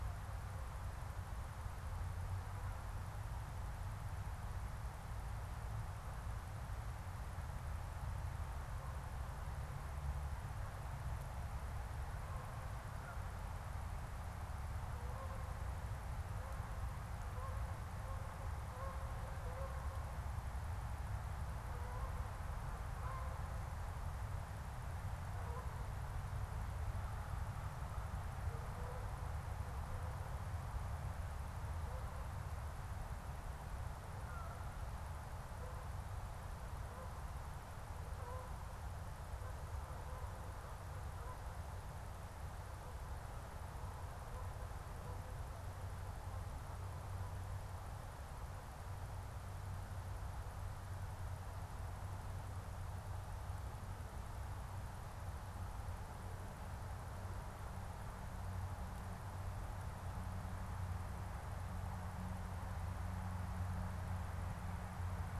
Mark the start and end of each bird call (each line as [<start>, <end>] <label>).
[11.84, 37.24] Canada Goose (Branta canadensis)
[37.94, 46.94] Canada Goose (Branta canadensis)